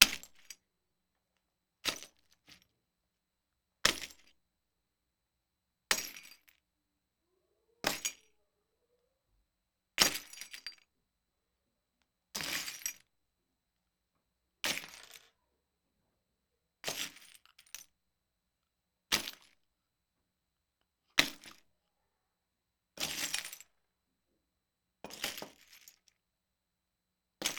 is something being broken?
yes